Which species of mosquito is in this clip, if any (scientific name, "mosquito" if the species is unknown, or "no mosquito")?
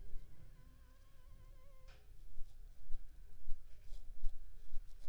Anopheles rivulorum